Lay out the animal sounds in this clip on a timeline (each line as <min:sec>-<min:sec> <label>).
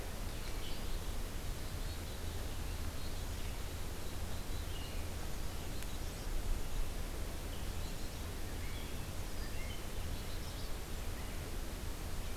0:00.0-0:12.4 Red-eyed Vireo (Vireo olivaceus)
0:01.3-0:05.0 Black-capped Chickadee (Poecile atricapillus)
0:09.9-0:10.8 Black-capped Chickadee (Poecile atricapillus)